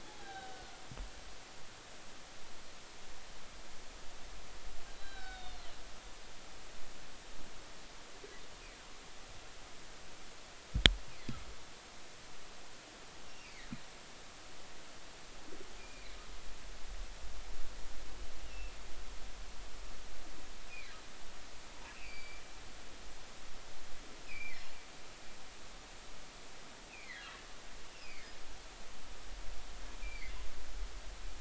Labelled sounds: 0.1	0.7	humpback whale, 0.80 to 1.7 kHz
5.0	5.5	humpback whale, 1.4 to 2.4 kHz
5.9	6.6	humpback whale, 3.5 to 4.1 kHz
13.3	13.7	humpback whale, 1.8 to 2.8 kHz
15.8	16.2	humpback whale, 2.0 to 2.5 kHz
18.4	18.7	humpback whale, 2.5 to 2.9 kHz
21.8	22.4	humpback whale, 2.2 to 4.9 kHz
24.3	24.6	humpback whale, 2.1 to 2.7 kHz
26.9	28.3	humpback whale, 1.6 to 2.7 kHz
30.0	30.4	humpback whale, 2.0 to 2.5 kHz

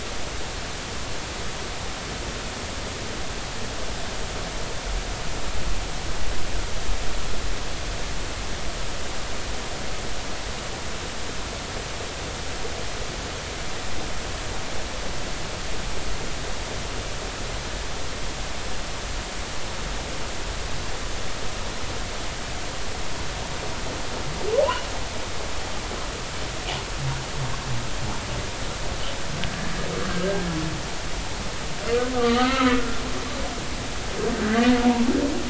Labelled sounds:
32.1	32.8	humpback whale, 0.96 to 2.2 kHz

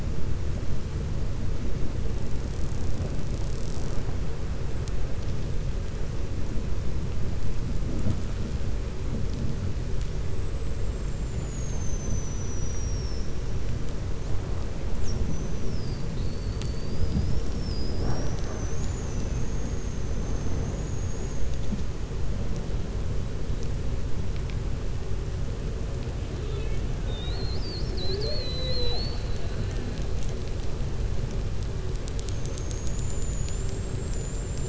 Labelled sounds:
20.1	21.4	killer whale, 6.1 to 6.8 kHz
26.4	26.8	killer whale, 1.3 to 3.9 kHz

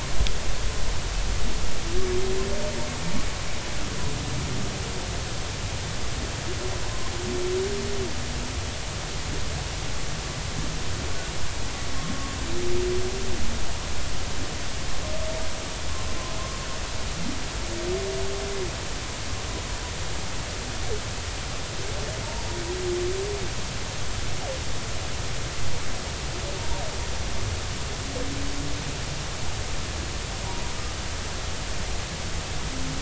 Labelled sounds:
22.2	22.6	humpback whale, 0.83 to 0.99 kHz

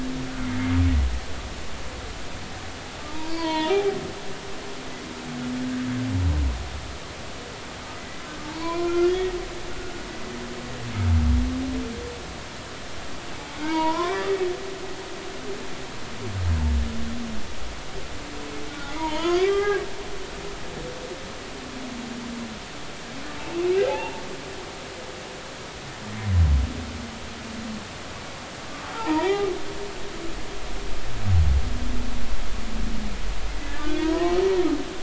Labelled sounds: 3.1	4.0	humpback whale, 0.80 to 4.4 kHz
8.4	9.3	humpback whale, 0.86 to 2.5 kHz
13.5	14.3	humpback whale, 0.86 to 2.9 kHz
18.7	19.8	humpback whale, 0.80 to 3.6 kHz
23.9	24.2	humpback whale, 0.80 to 0.96 kHz
28.9	29.5	humpback whale, 0.80 to 2.1 kHz
33.8	34.4	humpback whale, 0.90 to 2.6 kHz

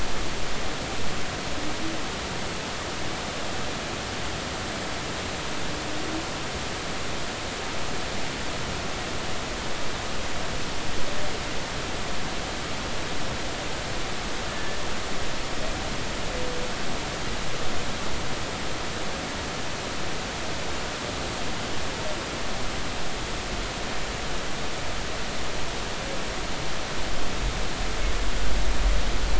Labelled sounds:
14.5	14.8	humpback whale, 1.7 to 1.9 kHz

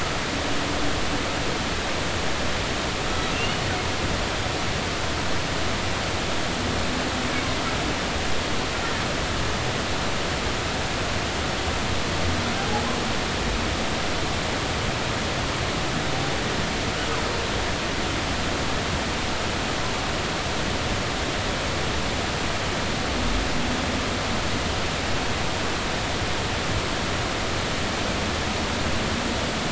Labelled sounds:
3.3	3.6	humpback whale, 2.6 to 3.0 kHz
12.6	12.9	humpback whale, 0.80 to 0.90 kHz

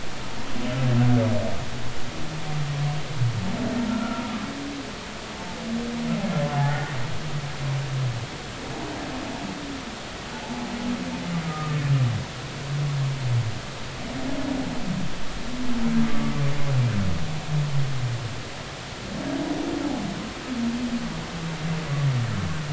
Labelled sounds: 3.9	4.2	humpback whale, 1.3 to 1.5 kHz
6.7	6.9	humpback whale, 1.4 to 1.5 kHz
10.4	10.7	humpback whale, 0.80 to 0.93 kHz
11.5	11.8	humpback whale, 1.2 to 1.3 kHz
16.0	16.3	humpback whale, 1.1 to 1.2 kHz

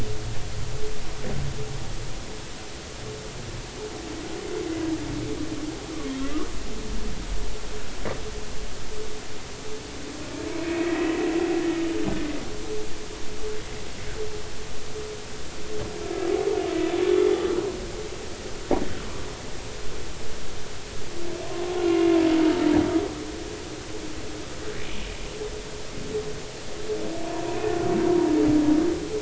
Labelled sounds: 10.8	11.1	humpback whale, 1.8 to 2.0 kHz
21.9	22.2	humpback whale, 2.1 to 2.2 kHz

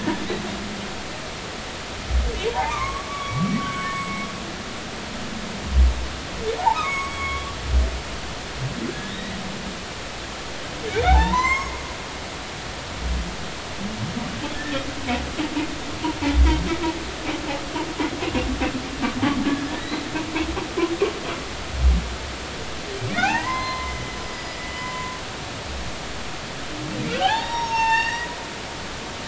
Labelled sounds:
2.5	4.3	humpback whale, 0.80 to 8.0 kHz
6.6	7.5	humpback whale, 0.80 to 6.7 kHz
8.9	9.3	humpback whale, 1.6 to 3.9 kHz
11.1	11.7	humpback whale, 0.80 to 7.7 kHz
19.4	20.1	humpback whale, 1.6 to 4.2 kHz
23.1	25.2	humpback whale, 0.80 to 5.1 kHz
27.1	28.4	humpback whale, 0.80 to 7.7 kHz

